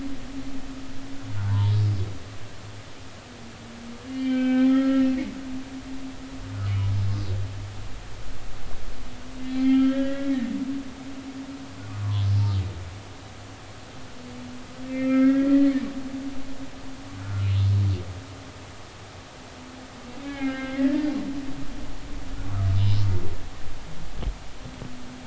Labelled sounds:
1.4	1.7	humpback whale, 0.86 to 1.1 kHz
4.1	5.1	humpback whale, 0.80 to 3.3 kHz
9.5	10.5	humpback whale, 0.80 to 4.3 kHz
14.9	15.5	humpback whale, 1.2 to 2.7 kHz
17.2	17.5	humpback whale, 1.3 to 1.5 kHz
20.2	21.1	humpback whale, 1.3 to 3.2 kHz
22.4	23.0	humpback whale, 1.1 to 5.2 kHz

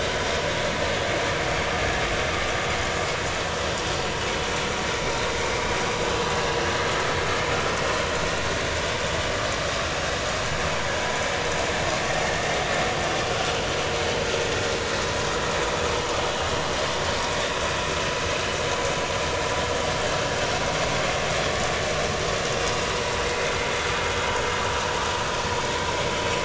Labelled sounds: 12.3	12.5	vessel noise, 1.7 to 1.9 kHz

